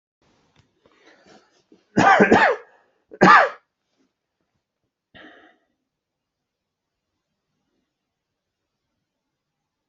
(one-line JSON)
{"expert_labels": [{"quality": "good", "cough_type": "dry", "dyspnea": false, "wheezing": false, "stridor": false, "choking": false, "congestion": true, "nothing": false, "diagnosis": "upper respiratory tract infection", "severity": "mild"}], "age": 40, "gender": "male", "respiratory_condition": false, "fever_muscle_pain": false, "status": "COVID-19"}